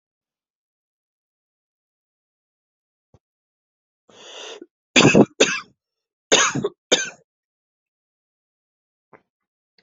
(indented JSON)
{
  "expert_labels": [
    {
      "quality": "good",
      "cough_type": "dry",
      "dyspnea": false,
      "wheezing": false,
      "stridor": false,
      "choking": false,
      "congestion": true,
      "nothing": false,
      "diagnosis": "upper respiratory tract infection",
      "severity": "mild"
    }
  ],
  "age": 43,
  "gender": "female",
  "respiratory_condition": true,
  "fever_muscle_pain": false,
  "status": "symptomatic"
}